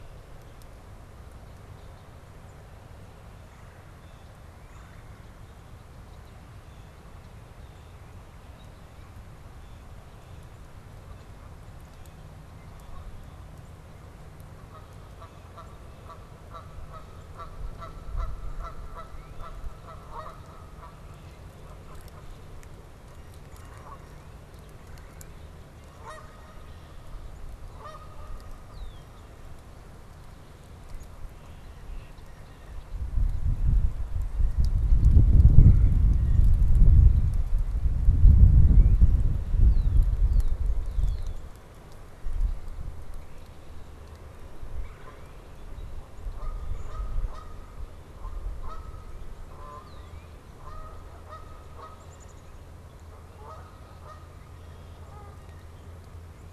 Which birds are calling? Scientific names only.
Melanerpes carolinus, Cyanocitta cristata, Cardinalis cardinalis, Agelaius phoeniceus, Branta canadensis, Poecile atricapillus